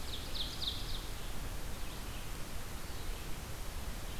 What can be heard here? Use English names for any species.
Ovenbird, Red-eyed Vireo